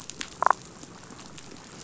{"label": "biophony, damselfish", "recorder": "SoundTrap 500"}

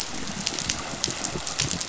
{"label": "biophony", "recorder": "SoundTrap 500"}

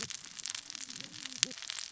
{"label": "biophony, cascading saw", "recorder": "SoundTrap 600 or HydroMoth"}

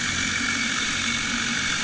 {"label": "anthrophony, boat engine", "recorder": "HydroMoth"}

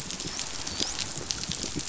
{"label": "biophony, dolphin", "recorder": "SoundTrap 500"}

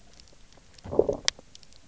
{"label": "biophony, low growl", "recorder": "SoundTrap 300"}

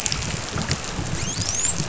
{"label": "biophony, dolphin", "recorder": "SoundTrap 500"}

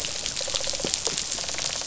{"label": "biophony, rattle response", "recorder": "SoundTrap 500"}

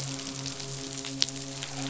{"label": "biophony, midshipman", "recorder": "SoundTrap 500"}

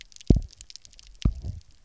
{"label": "biophony, double pulse", "recorder": "SoundTrap 300"}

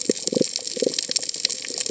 {"label": "biophony", "recorder": "HydroMoth"}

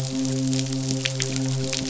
{"label": "biophony, midshipman", "recorder": "SoundTrap 500"}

